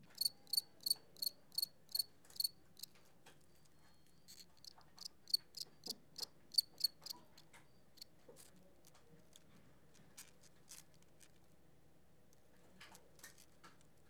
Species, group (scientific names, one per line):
Gryllus bimaculatus
Orthoptera